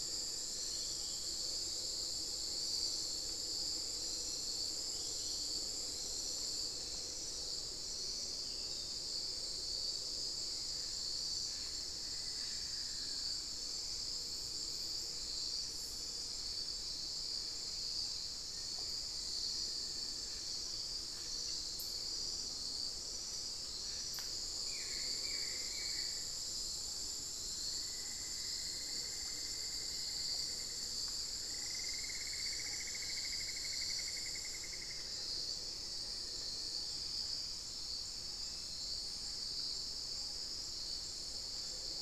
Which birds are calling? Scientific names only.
Formicarius analis, Dendrocolaptes certhia, unidentified bird, Xiphorhynchus guttatus, Dendrexetastes rufigula